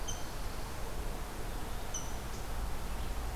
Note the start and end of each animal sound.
[0.00, 3.35] Rose-breasted Grosbeak (Pheucticus ludovicianus)

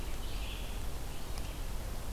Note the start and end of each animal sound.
[0.00, 2.12] Red-eyed Vireo (Vireo olivaceus)

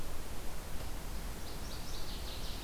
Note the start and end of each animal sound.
[1.22, 2.64] Northern Waterthrush (Parkesia noveboracensis)

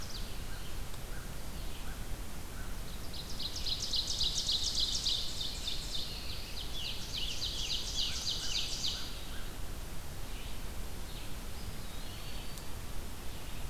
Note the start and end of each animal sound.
[0.00, 0.71] Ovenbird (Seiurus aurocapilla)
[0.00, 3.32] American Crow (Corvus brachyrhynchos)
[0.00, 13.70] Red-eyed Vireo (Vireo olivaceus)
[2.85, 9.11] Ovenbird (Seiurus aurocapilla)
[6.38, 9.07] Scarlet Tanager (Piranga olivacea)
[7.80, 10.79] American Crow (Corvus brachyrhynchos)
[11.36, 13.01] Eastern Wood-Pewee (Contopus virens)

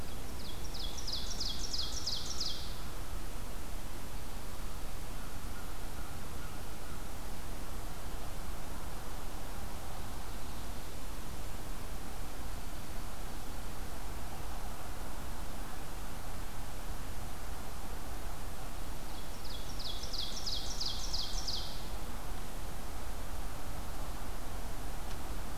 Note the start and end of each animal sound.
[0.00, 2.79] Ovenbird (Seiurus aurocapilla)
[1.71, 7.31] American Crow (Corvus brachyrhynchos)
[18.89, 21.86] Ovenbird (Seiurus aurocapilla)

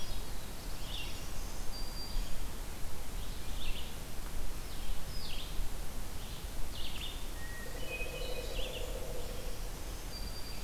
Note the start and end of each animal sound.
[0.00, 10.63] Red-eyed Vireo (Vireo olivaceus)
[0.03, 1.54] Black-throated Blue Warbler (Setophaga caerulescens)
[1.36, 2.56] Black-throated Green Warbler (Setophaga virens)
[7.33, 8.56] Hermit Thrush (Catharus guttatus)
[7.58, 9.50] Pileated Woodpecker (Dryocopus pileatus)
[9.14, 10.63] Black-throated Green Warbler (Setophaga virens)

